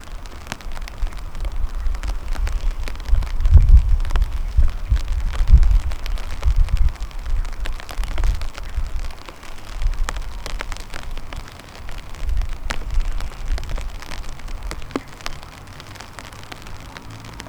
Is the sound of the fire constant?
yes